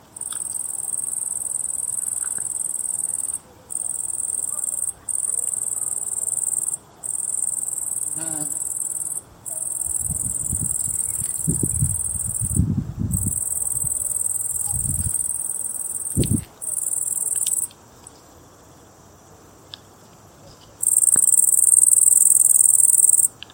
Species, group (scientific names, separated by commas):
Tettigonia viridissima, Orthoptera